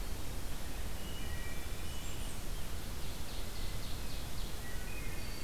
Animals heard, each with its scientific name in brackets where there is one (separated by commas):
Ovenbird (Seiurus aurocapilla), Blackburnian Warbler (Setophaga fusca), Wood Thrush (Hylocichla mustelina)